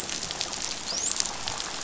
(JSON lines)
{"label": "biophony, dolphin", "recorder": "SoundTrap 500"}